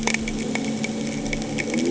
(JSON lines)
{"label": "anthrophony, boat engine", "recorder": "HydroMoth"}